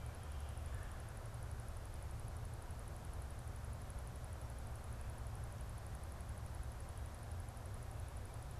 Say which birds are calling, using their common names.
Red-bellied Woodpecker